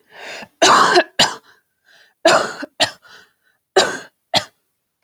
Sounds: Cough